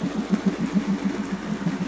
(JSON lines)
{"label": "anthrophony, boat engine", "recorder": "SoundTrap 500"}